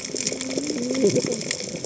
{"label": "biophony, cascading saw", "recorder": "HydroMoth"}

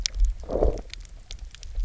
{"label": "biophony, low growl", "recorder": "SoundTrap 300"}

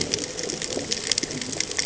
{"label": "ambient", "recorder": "HydroMoth"}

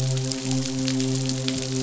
{"label": "biophony, midshipman", "recorder": "SoundTrap 500"}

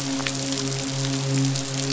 {"label": "biophony, midshipman", "recorder": "SoundTrap 500"}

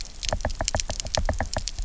{"label": "biophony, knock", "recorder": "SoundTrap 300"}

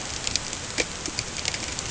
{"label": "ambient", "recorder": "HydroMoth"}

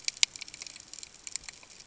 {"label": "ambient", "recorder": "HydroMoth"}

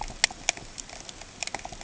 {"label": "ambient", "recorder": "HydroMoth"}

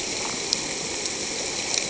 {"label": "ambient", "recorder": "HydroMoth"}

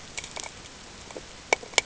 {"label": "ambient", "recorder": "HydroMoth"}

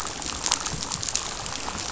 {"label": "biophony", "recorder": "SoundTrap 500"}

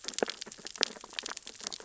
{"label": "biophony, sea urchins (Echinidae)", "recorder": "SoundTrap 600 or HydroMoth"}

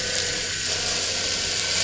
{"label": "anthrophony, boat engine", "recorder": "SoundTrap 500"}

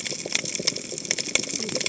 {"label": "biophony, cascading saw", "recorder": "HydroMoth"}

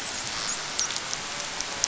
{"label": "biophony, dolphin", "recorder": "SoundTrap 500"}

